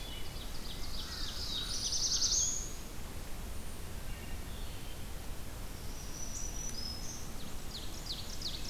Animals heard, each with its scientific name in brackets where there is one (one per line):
Black-throated Blue Warbler (Setophaga caerulescens)
Rose-breasted Grosbeak (Pheucticus ludovicianus)
Black-throated Green Warbler (Setophaga virens)
Ovenbird (Seiurus aurocapilla)
Black-and-white Warbler (Mniotilta varia)
Wood Thrush (Hylocichla mustelina)
unidentified call